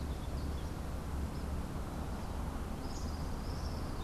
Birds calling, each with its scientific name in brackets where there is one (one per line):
Tropical Kingbird (Tyrannus melancholicus)